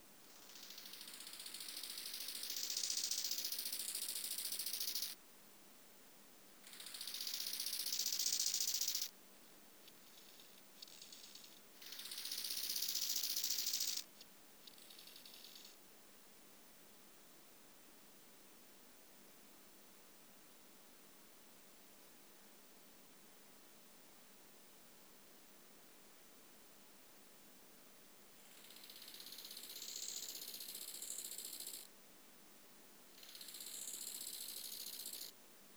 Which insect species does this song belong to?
Chorthippus biguttulus